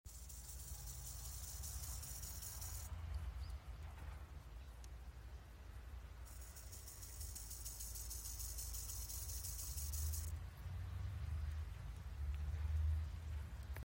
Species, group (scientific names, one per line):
Gomphocerippus rufus
Orthoptera